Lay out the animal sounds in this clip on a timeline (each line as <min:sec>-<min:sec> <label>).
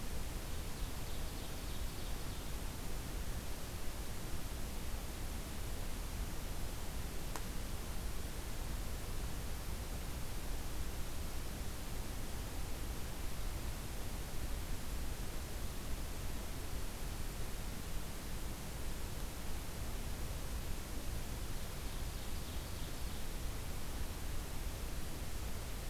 0:00.5-0:02.6 Ovenbird (Seiurus aurocapilla)
0:21.4-0:23.4 Ovenbird (Seiurus aurocapilla)